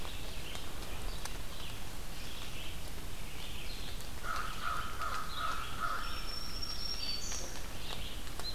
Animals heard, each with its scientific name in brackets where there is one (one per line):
Red-eyed Vireo (Vireo olivaceus)
American Crow (Corvus brachyrhynchos)
Black-throated Green Warbler (Setophaga virens)